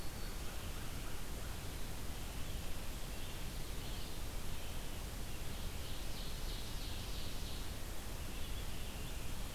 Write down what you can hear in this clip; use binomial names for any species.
Vireo olivaceus, Seiurus aurocapilla